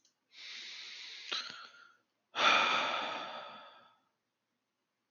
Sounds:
Sigh